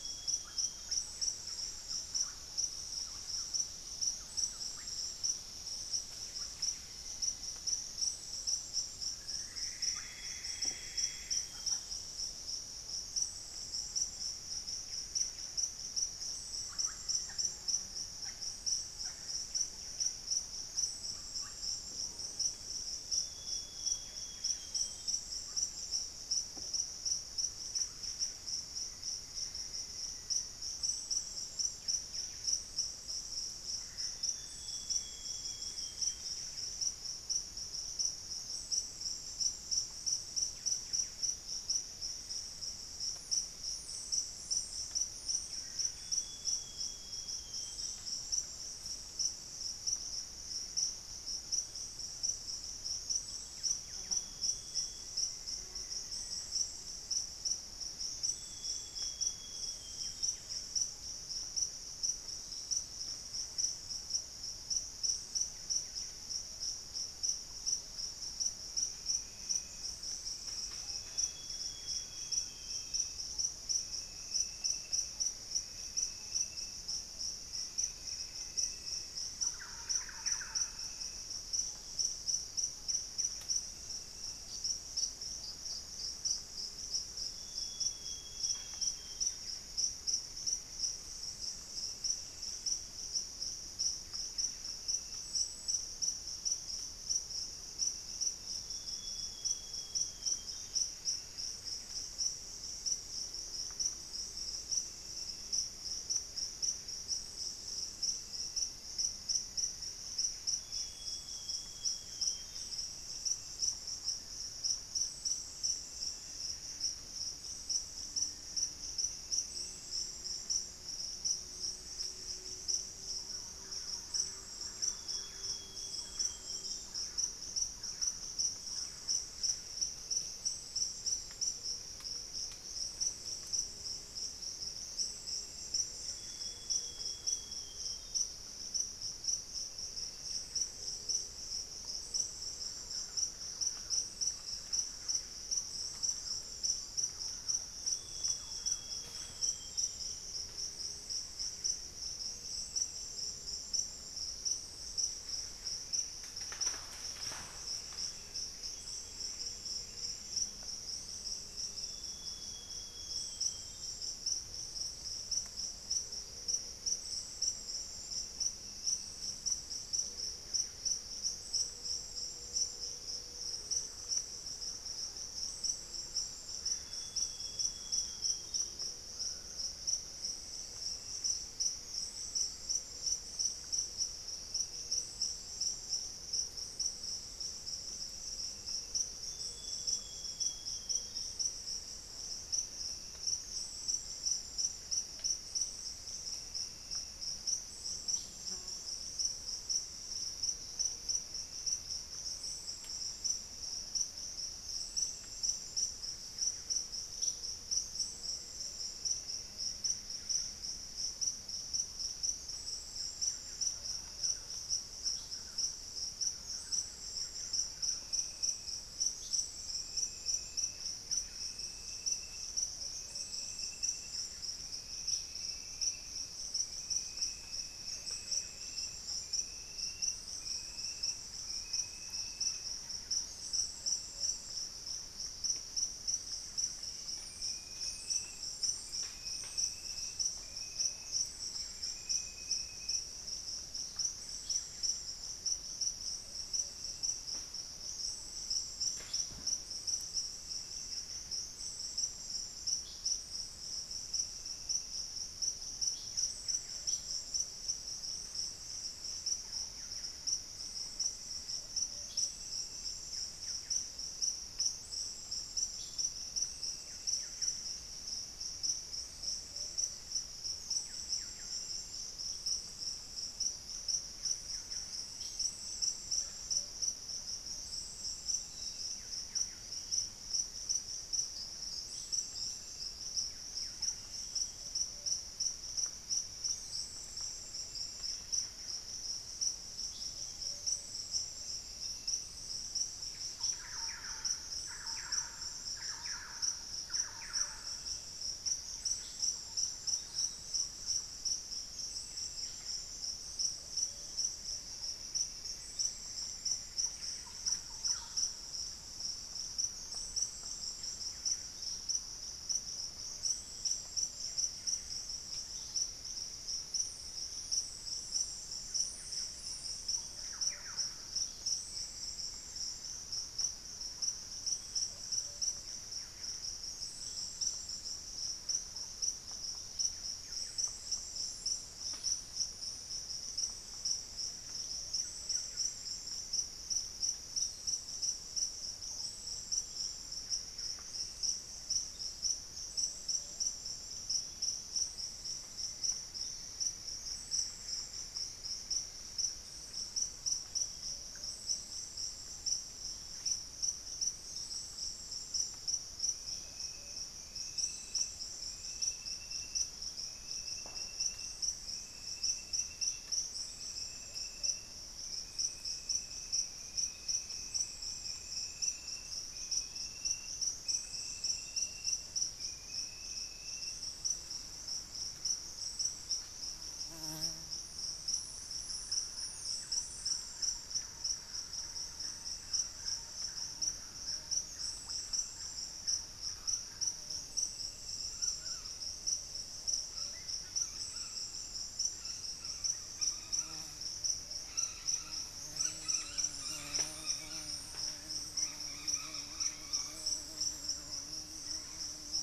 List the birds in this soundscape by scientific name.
Cyanoloxia rothschildii, Cantorchilus leucotis, Psarocolius angustifrons, Campylorhynchus turdinus, Formicarius analis, Penelope jacquacu, Myrmelastes hyperythrus, unidentified bird, Nasica longirostris, Lipaugus vociferans, Patagioenas plumbea, Legatus leucophaius, Hemitriccus griseipectus, Cacicus cela, Orthopsittaca manilatus